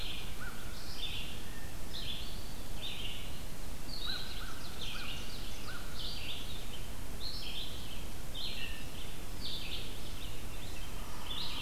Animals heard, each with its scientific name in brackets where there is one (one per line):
Red-eyed Vireo (Vireo olivaceus)
Yellow-bellied Sapsucker (Sphyrapicus varius)
American Crow (Corvus brachyrhynchos)
Blue Jay (Cyanocitta cristata)
Ovenbird (Seiurus aurocapilla)